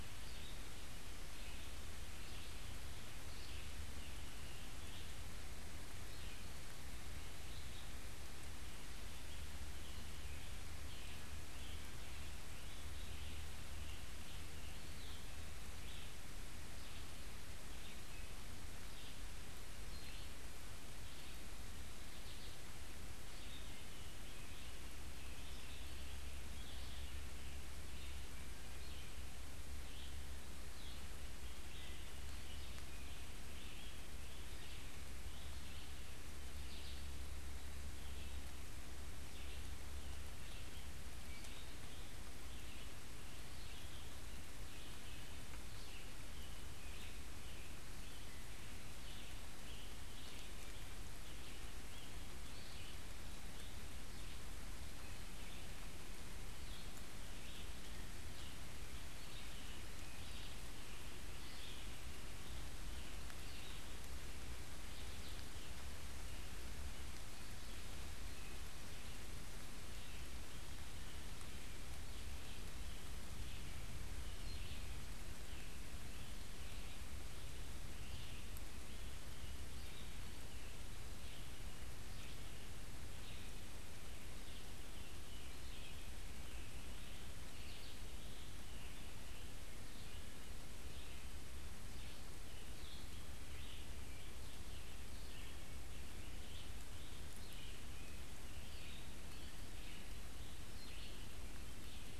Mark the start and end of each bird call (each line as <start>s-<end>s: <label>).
0.0s-65.9s: Red-eyed Vireo (Vireo olivaceus)
31.4s-36.3s: Scarlet Tanager (Piranga olivacea)
42.2s-51.9s: Scarlet Tanager (Piranga olivacea)
52.3s-53.6s: Eastern Wood-Pewee (Contopus virens)
59.0s-65.2s: Scarlet Tanager (Piranga olivacea)
68.1s-102.2s: Scarlet Tanager (Piranga olivacea)
68.2s-102.2s: Red-eyed Vireo (Vireo olivaceus)
95.3s-96.0s: Wood Thrush (Hylocichla mustelina)